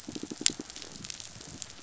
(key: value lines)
label: biophony, pulse
recorder: SoundTrap 500